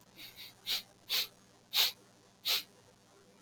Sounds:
Sniff